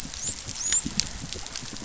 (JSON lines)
{"label": "biophony, dolphin", "recorder": "SoundTrap 500"}